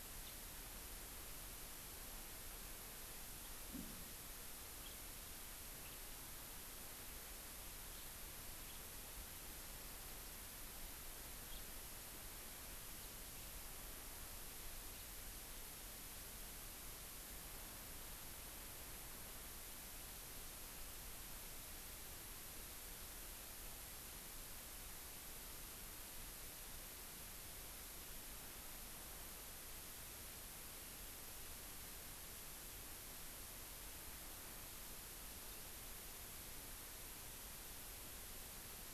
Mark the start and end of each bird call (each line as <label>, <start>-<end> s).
House Finch (Haemorhous mexicanus), 0.2-0.3 s
House Finch (Haemorhous mexicanus), 4.8-4.9 s
House Finch (Haemorhous mexicanus), 5.8-6.0 s
House Finch (Haemorhous mexicanus), 11.4-11.6 s